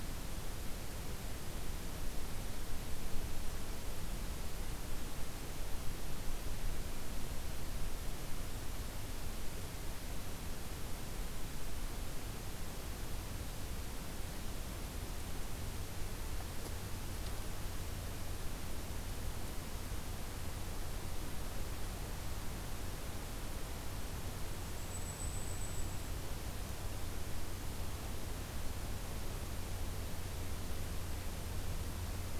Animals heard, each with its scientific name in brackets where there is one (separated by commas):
Blackpoll Warbler (Setophaga striata)